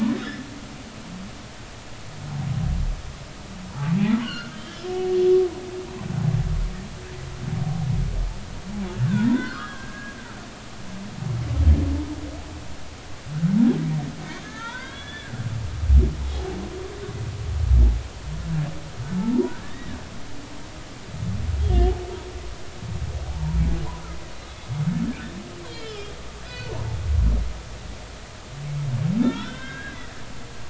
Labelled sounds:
4.2	4.9	humpback whale, 1.3 to 3.3 kHz
8.9	10.2	humpback whale, 0.93 to 3.4 kHz
14.4	15.4	humpback whale, 0.86 to 3.8 kHz
19.6	19.9	humpback whale, 1.6 to 2.0 kHz
21.6	21.9	humpback whale, 3.1 to 3.4 kHz
23.2	23.6	humpback whale, 0.80 to 1.0 kHz
25.7	26.7	humpback whale, 1.4 to 4.5 kHz
29.2	30.1	humpback whale, 1.2 to 4.1 kHz

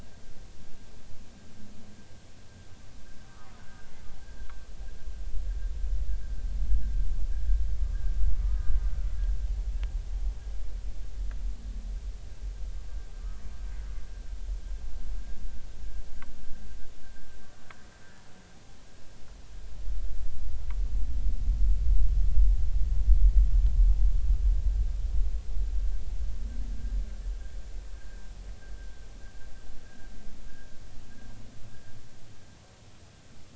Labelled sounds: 8.4	9.1	humpback whale, 1.2 to 1.5 kHz
28.0	28.2	humpback whale, 1.5 to 1.7 kHz

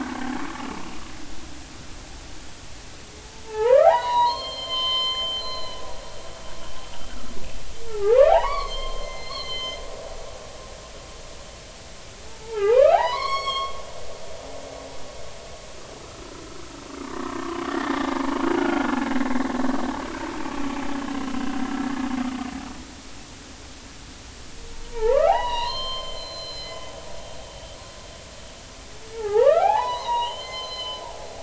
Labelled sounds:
3.5	6.8	humpback whale, 0.80 to 7.3 kHz
7.9	9.8	humpback whale, 0.80 to 4.7 kHz
12.3	13.7	humpback whale, 0.80 to 6.7 kHz
16.0	16.3	humpback whale, 1.2 to 1.4 kHz
18.6	19.5	humpback whale, 1.3 to 2.1 kHz
24.9	27.8	humpback whale, 0.80 to 7.3 kHz
29.1	31.0	humpback whale, 0.80 to 6.2 kHz

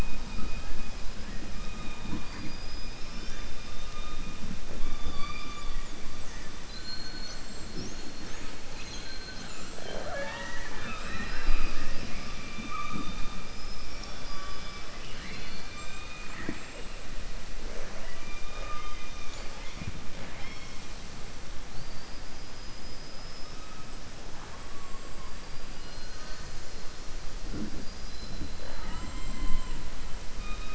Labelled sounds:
8.7	9.6	killer whale, southern resident, 1.5 to 4.4 kHz
21.7	23.6	killer whale, southern resident, 4.5 to 5.4 kHz

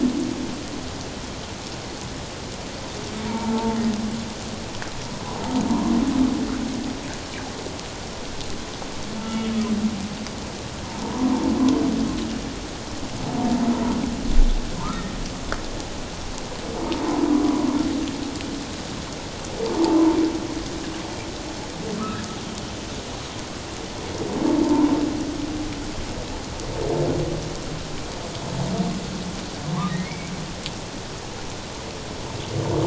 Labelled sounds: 3.2	3.8	humpback whale, 0.84 to 1.0 kHz
9.2	9.5	humpback whale, 1.3 to 3.0 kHz
11.0	11.3	humpback whale, 0.88 to 1.1 kHz
14.8	15.1	humpback whale, 0.88 to 1.4 kHz
24.6	24.9	humpback whale, 0.84 to 1.1 kHz
29.9	30.3	humpback whale, 1.8 to 2.4 kHz

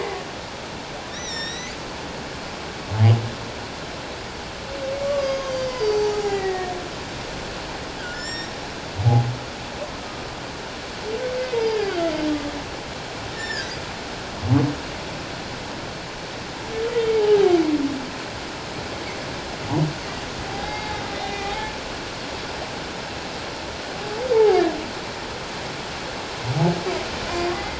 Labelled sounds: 1.1	1.7	humpback whale, 1.7 to 7.6 kHz
5.0	6.7	humpback whale, 0.78 to 6.6 kHz
8.0	8.5	humpback whale, 1.4 to 7.5 kHz
11.7	12.1	humpback whale, 1.3 to 1.8 kHz
13.3	13.7	humpback whale, 1.5 to 7.3 kHz
17.2	17.6	humpback whale, 0.78 to 0.91 kHz
20.5	21.7	humpback whale, 0.78 to 4.8 kHz
24.3	24.6	humpback whale, 0.78 to 0.97 kHz
27.5	27.7	humpback whale, 1.9 to 2.1 kHz

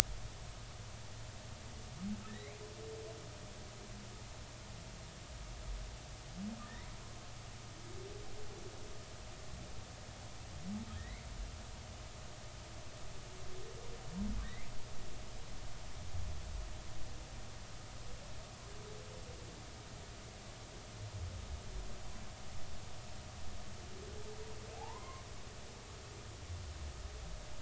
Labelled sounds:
2.3	2.6	humpback whale, 1.7 to 2.6 kHz
6.6	7.0	humpback whale, 1.7 to 2.3 kHz
10.9	11.2	humpback whale, 1.6 to 2.4 kHz
14.4	14.7	humpback whale, 1.8 to 2.5 kHz
24.8	25.2	humpback whale, 0.80 to 2.3 kHz

